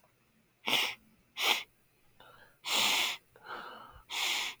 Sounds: Sniff